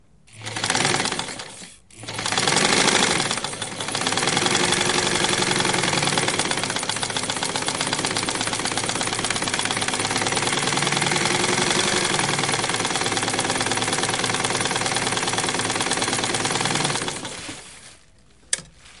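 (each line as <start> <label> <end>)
0.1 A small combustion engine running at varying speeds. 17.9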